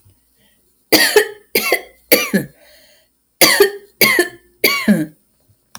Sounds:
Cough